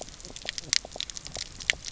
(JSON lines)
{"label": "biophony, knock croak", "recorder": "SoundTrap 300"}